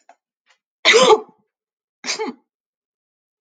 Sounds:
Sneeze